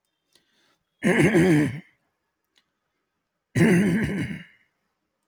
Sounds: Throat clearing